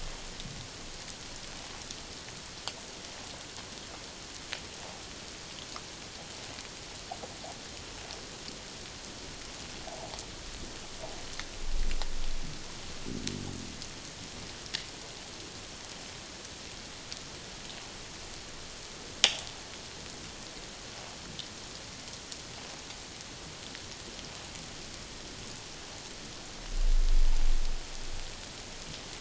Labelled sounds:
9.9	10.1	water noise, 0.78 to 0.97 kHz

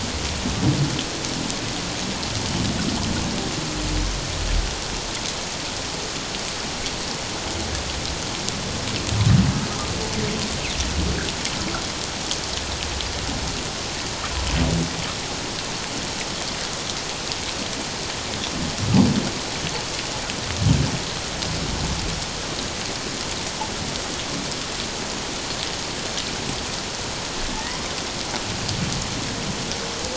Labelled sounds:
27.5	27.9	humpback whale, 0.81 to 1.2 kHz

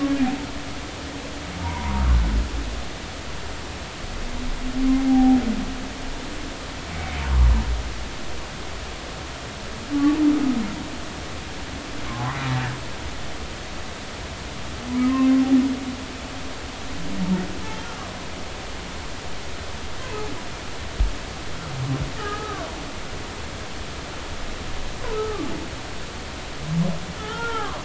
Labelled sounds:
1.6	2.0	humpback whale, 0.86 to 1.2 kHz
4.9	5.4	humpback whale, 0.80 to 0.86 kHz
6.9	7.2	humpback whale, 2.1 to 2.3 kHz
12.1	12.4	humpback whale, 0.96 to 1.2 kHz
23.2	23.6	humpback whale, 1.0 to 1.4 kHz
25.1	25.5	humpback whale, 1.1 to 1.4 kHz
27.1	27.8	humpback whale, 0.83 to 1.5 kHz

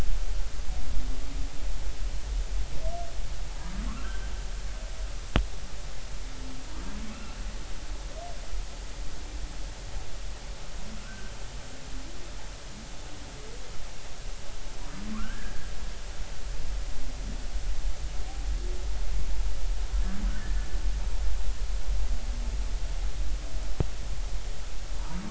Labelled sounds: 3.9	4.3	humpback whale, 1.0 to 1.7 kHz
7.1	7.3	humpback whale, 2.5 to 2.8 kHz
11.0	11.3	humpback whale, 1.3 to 1.6 kHz
15.1	15.6	humpback whale, 1.0 to 1.8 kHz
20.4	20.7	humpback whale, 1.7 to 1.9 kHz

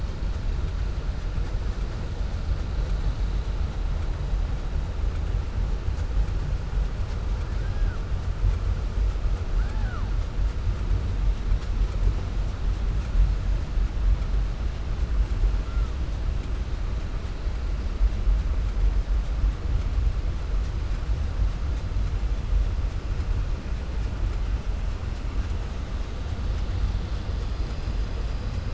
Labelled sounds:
7.5	8.0	killer whale, 0.82 to 1.8 kHz

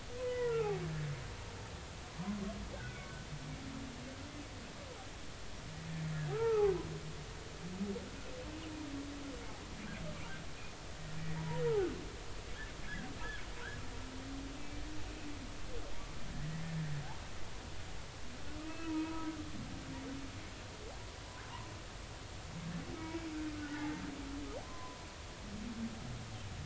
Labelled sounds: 0.2	1.1	humpback whale, 0.90 to 2.0 kHz
2.7	3.2	humpback whale, 1.4 to 2.7 kHz
6.3	6.7	humpback whale, 0.80 to 1.4 kHz
11.4	11.6	humpback whale, 0.86 to 1.0 kHz
18.6	19.3	humpback whale, 0.90 to 2.7 kHz
23.5	25.0	humpback whale, 0.80 to 2.0 kHz

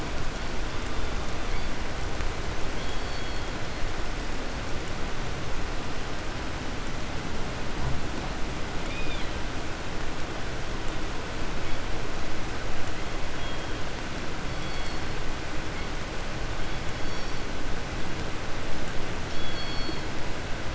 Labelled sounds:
0.3	1.8	killer whale, southern resident, 1.4 to 5.4 kHz
2.6	4.0	killer whale, southern resident, 2.7 to 4.8 kHz
8.7	9.5	killer whale, 1.7 to 5.3 kHz
11.5	12.1	killer whale, 1.7 to 5.7 kHz
12.8	15.3	killer whale, southern resident, call S16, 1.6 to 8.0 kHz
15.6	16.2	killer whale, 1.7 to 5.0 kHz
16.3	17.7	killer whale, southern resident, 1.6 to 8.0 kHz
19.1	20.2	killer whale, southern resident, call S16, 1.9 to 6.0 kHz

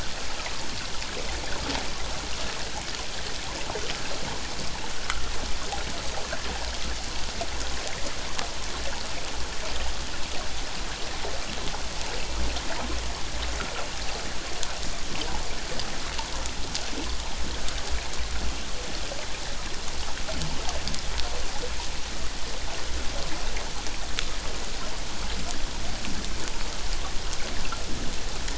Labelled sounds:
5.0	5.3	water noise, 1.1 to 1.6 kHz

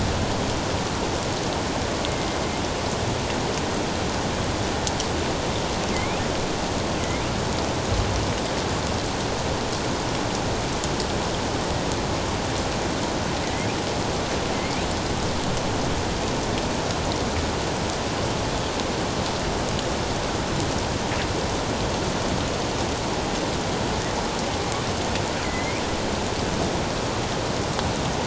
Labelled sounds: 2.1	2.4	killer whale, northern resident, A clan, AA subclan, A04 pod, 2.0 to 2.2 kHz
5.9	6.2	killer whale, northern resident, A clan, AA subclan, A04 pod, 2.0 to 2.8 kHz
7.0	7.3	killer whale, northern resident, A clan, AA subclan, A04 pod, 1.9 to 2.5 kHz
13.4	13.7	killer whale, northern resident, A clan, AA subclan, A04 pod, 1.9 to 2.2 kHz
25.4	25.8	killer whale, northern resident, A clan, AA subclan, A04 pod, 1.9 to 2.5 kHz

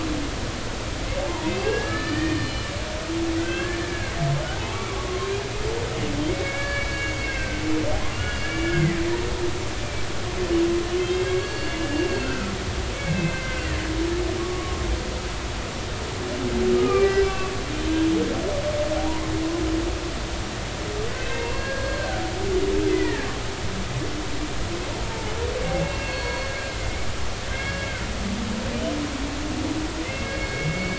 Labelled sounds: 1.3	4.1	humpback whale, 0.86 to 4.3 kHz
4.9	5.3	humpback whale, 0.99 to 1.2 kHz
6.3	7.6	humpback whale, 1.5 to 4.6 kHz
8.1	9.0	humpback whale, 1.4 to 3.0 kHz
11.0	12.5	humpback whale, 1.3 to 4.5 kHz
12.9	13.7	humpback whale, 1.5 to 2.7 kHz
14.4	14.8	humpback whale, 1.1 to 1.2 kHz
16.7	17.6	humpback whale, 1.1 to 5.2 kHz
21.4	22.3	humpback whale, 1.3 to 4.4 kHz
22.9	23.3	humpback whale, 1.6 to 2.1 kHz
25.0	26.5	humpback whale, 0.83 to 4.5 kHz
27.5	27.9	humpback whale, 1.5 to 2.3 kHz
30.0	30.9	humpback whale, 1.5 to 2.3 kHz

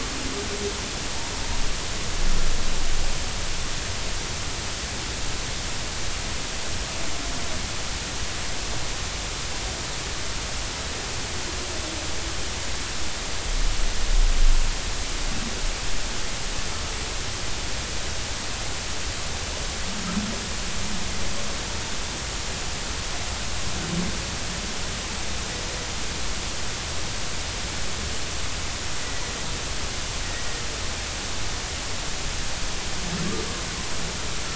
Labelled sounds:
30.2	30.6	humpback whale, 1.8 to 2.0 kHz

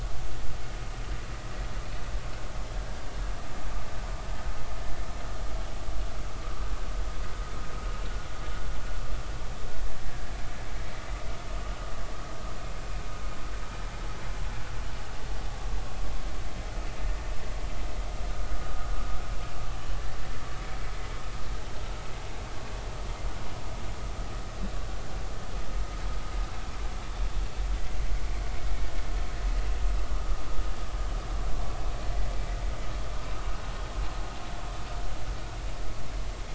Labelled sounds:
10.1	10.3	vessel noise, 1.6 to 1.8 kHz

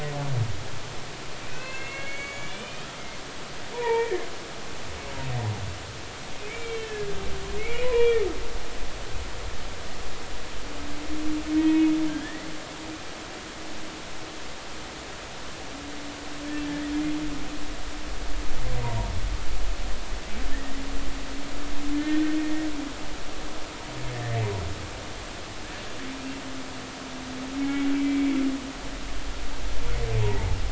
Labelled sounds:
1.5	2.9	humpback whale, 1.6 to 4.5 kHz
3.7	4.3	humpback whale, 0.83 to 2.4 kHz
6.5	8.2	humpback whale, 0.90 to 3.3 kHz
11.5	12.5	humpback whale, 1.5 to 2.6 kHz
18.8	19.1	humpback whale, 0.90 to 1.1 kHz
22.0	22.7	humpback whale, 1.5 to 2.0 kHz
24.1	24.4	humpback whale, 1.7 to 1.9 kHz
27.6	28.4	humpback whale, 2.1 to 2.4 kHz

